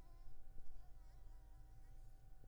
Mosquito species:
Anopheles arabiensis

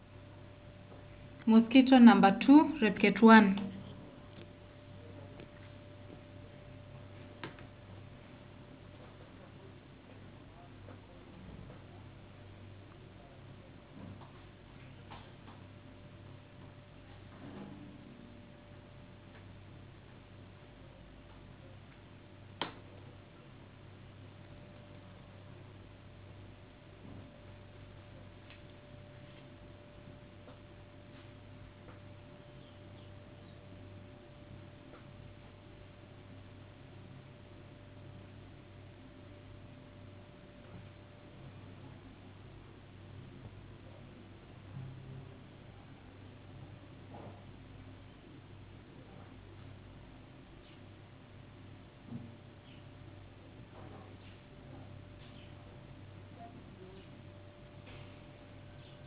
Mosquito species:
no mosquito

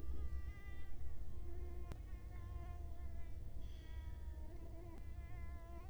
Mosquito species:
Culex quinquefasciatus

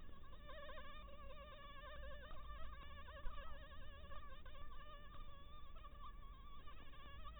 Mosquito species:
Anopheles maculatus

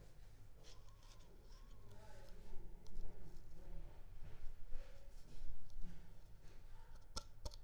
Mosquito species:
Culex pipiens complex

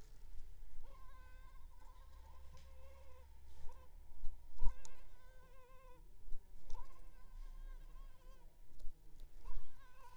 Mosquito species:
Culex pipiens complex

